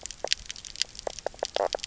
{"label": "biophony, knock croak", "recorder": "SoundTrap 300"}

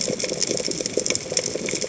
{"label": "biophony, chatter", "recorder": "HydroMoth"}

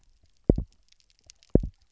{"label": "biophony, double pulse", "recorder": "SoundTrap 300"}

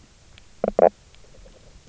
{"label": "biophony, knock croak", "recorder": "SoundTrap 300"}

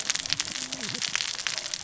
{"label": "biophony, cascading saw", "recorder": "SoundTrap 600 or HydroMoth"}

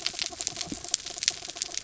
{"label": "anthrophony, mechanical", "recorder": "SoundTrap 300"}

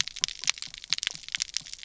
{"label": "biophony", "recorder": "SoundTrap 300"}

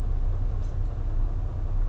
{"label": "anthrophony, boat engine", "recorder": "SoundTrap 300"}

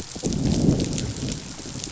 {"label": "biophony, growl", "recorder": "SoundTrap 500"}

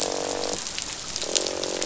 {"label": "biophony, croak", "recorder": "SoundTrap 500"}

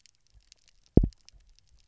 {"label": "biophony, double pulse", "recorder": "SoundTrap 300"}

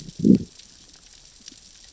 {"label": "biophony, growl", "recorder": "SoundTrap 600 or HydroMoth"}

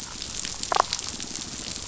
{"label": "biophony, damselfish", "recorder": "SoundTrap 500"}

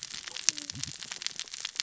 {"label": "biophony, cascading saw", "recorder": "SoundTrap 600 or HydroMoth"}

